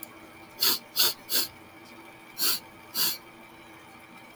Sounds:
Sniff